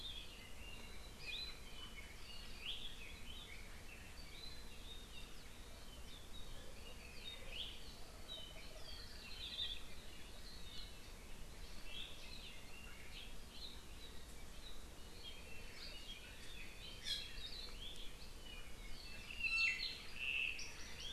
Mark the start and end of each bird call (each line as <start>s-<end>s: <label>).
0.0s-4.0s: Red-billed Leiothrix (Leiothrix lutea)
9.5s-9.7s: Hawaii Akepa (Loxops coccineus)
10.7s-11.0s: Iiwi (Drepanis coccinea)
17.0s-17.4s: Iiwi (Drepanis coccinea)
17.4s-17.7s: Hawaii Akepa (Loxops coccineus)
19.4s-20.0s: Iiwi (Drepanis coccinea)